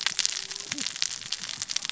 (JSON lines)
{"label": "biophony, cascading saw", "recorder": "SoundTrap 600 or HydroMoth"}